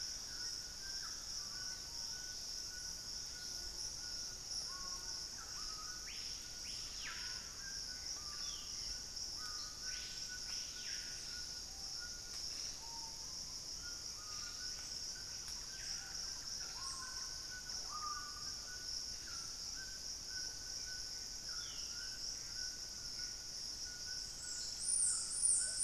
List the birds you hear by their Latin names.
Ramphastos tucanus, unidentified bird, Lipaugus vociferans, Corythopis torquatus, Campylorhynchus turdinus, Cercomacra cinerascens